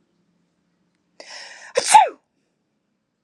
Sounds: Sneeze